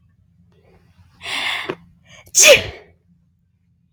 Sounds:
Sneeze